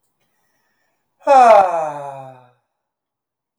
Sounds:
Sigh